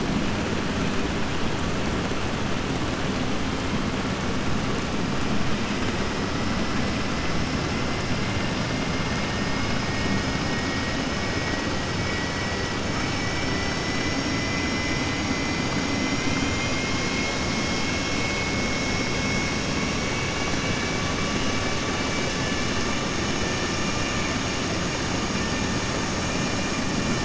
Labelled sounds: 12.0	12.5	killer whale, southern resident, 1.7 to 3.0 kHz
12.9	14.2	killer whale, southern resident, 1.0 to 3.1 kHz

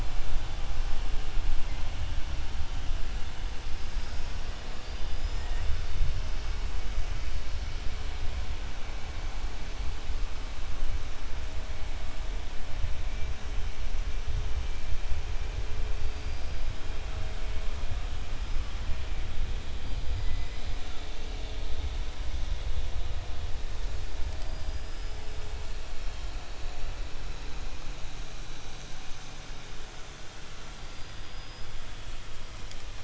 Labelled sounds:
4.7	5.3	killer whale, 4.5 to 5.2 kHz

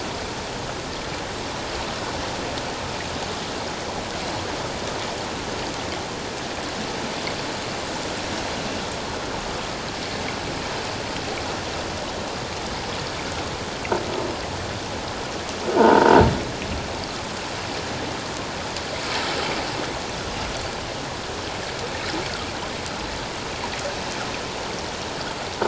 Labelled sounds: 15.8	16.1	croaking sound likely from a nearby submerged object, 0.84 to 1.6 kHz

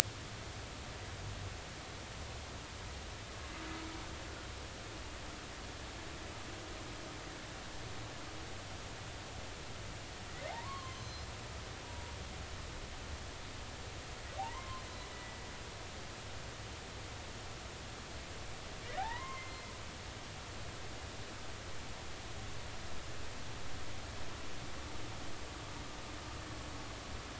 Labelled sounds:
10.5	11.2	humpback whale, 0.80 to 6.2 kHz
11.8	12.1	humpback whale, 0.93 to 0.99 kHz
14.4	15.4	humpback whale, 0.80 to 2.0 kHz
19.0	19.6	humpback whale, 0.80 to 2.2 kHz

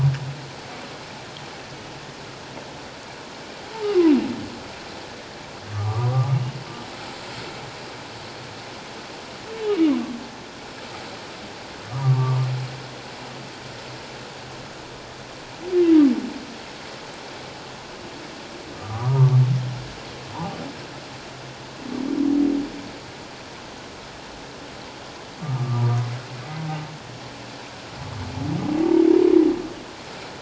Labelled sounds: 5.7	6.4	humpback whale, 1.1 to 1.3 kHz
12.0	12.4	humpback whale, 1.1 to 1.2 kHz
18.8	19.3	humpback whale, 0.88 to 1.4 kHz
25.4	26.0	humpback whale, 1.1 to 1.3 kHz

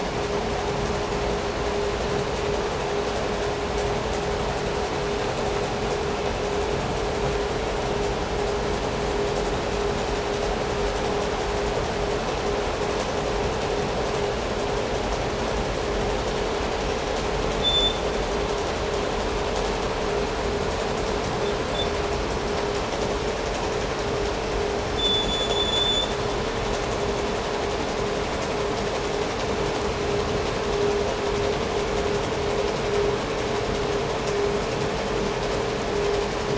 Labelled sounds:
17.4	18.1	vessel noise, 3.3 to 7.3 kHz
21.3	22.0	vessel noise, 3.2 to 3.7 kHz
24.9	26.2	vessel noise, 3.1 to 7.3 kHz

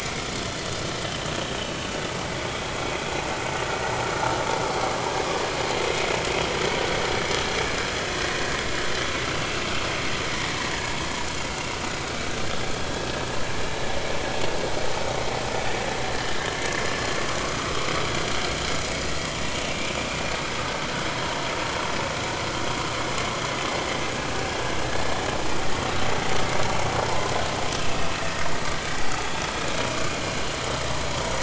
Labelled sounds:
9.2	9.6	vessel noise, 2.6 to 2.8 kHz
11.5	11.8	vessel noise, 2.7 to 2.9 kHz
13.1	13.4	vessel noise, 1.6 to 1.8 kHz
17.4	17.7	vessel noise, 1.0 to 1.5 kHz
24.9	25.1	vessel noise, 1.6 to 1.8 kHz
27.0	27.3	vessel noise, 0.83 to 1.1 kHz
28.2	28.5	vessel noise, 1.8 to 1.9 kHz

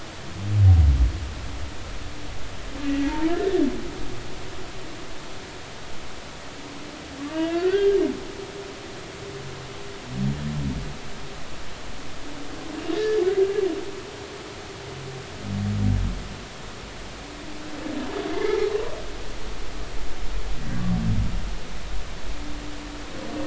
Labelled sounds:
2.9	3.1	humpback whale, 1.9 to 2.0 kHz
7.3	7.9	humpback whale, 1.3 to 2.8 kHz
8.3	8.9	humpback whale, 1.5 to 2.0 kHz
12.9	13.2	humpback whale, 1.7 to 1.9 kHz
19.3	19.6	humpback whale, 2.0 to 2.2 kHz

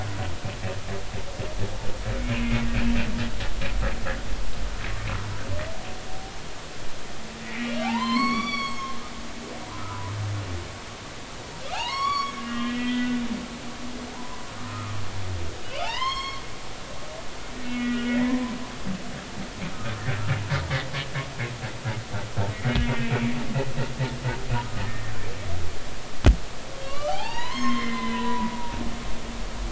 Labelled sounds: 2.3	2.7	humpback whale, 2.0 to 2.8 kHz
7.5	9.2	humpback whale, 0.80 to 7.5 kHz
9.8	10.1	humpback whale, 0.93 to 1.5 kHz
11.7	13.2	humpback whale, 0.80 to 6.9 kHz
14.1	14.9	humpback whale, 0.86 to 1.4 kHz
15.6	18.5	humpback whale, 0.80 to 6.6 kHz
23.1	23.3	humpback whale, 2.2 to 2.5 kHz
24.8	25.1	humpback whale, 1.7 to 1.9 kHz
26.8	28.8	humpback whale, 0.80 to 6.5 kHz

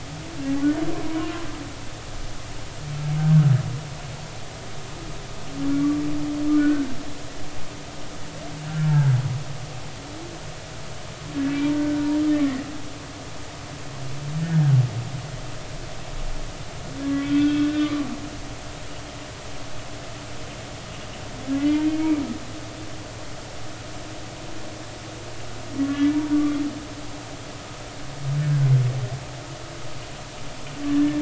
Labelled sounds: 0.9	1.3	humpback whale, 0.93 to 1.1 kHz
5.8	6.0	humpback whale, 1.1 to 1.2 kHz
6.5	6.9	humpback whale, 1.4 to 1.6 kHz
8.7	9.1	humpback whale, 1.3 to 1.7 kHz
11.7	12.1	humpback whale, 1.4 to 1.6 kHz
17.1	18.0	humpback whale, 0.99 to 3.7 kHz
21.6	22.2	humpback whale, 2.0 to 2.5 kHz
25.8	26.6	humpback whale, 1.1 to 1.8 kHz
30.9	31.2	humpback whale, 1.7 to 1.8 kHz

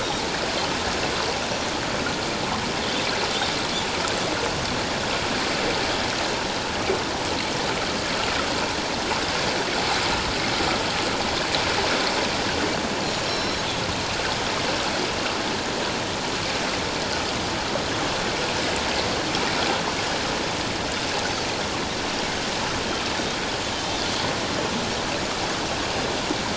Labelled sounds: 13.2	13.6	Pacific white-sided dolphin, 3.9 to 5.6 kHz

